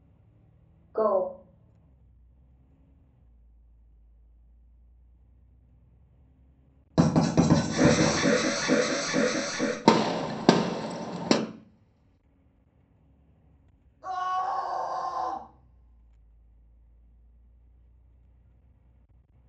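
At 0.95 seconds, someone says "Go." Then at 6.95 seconds, you can hear writing. Over it, at 7.71 seconds, an alarm can be heard. After that, at 9.84 seconds, gunfire is audible. Following that, at 14.01 seconds, someone screams.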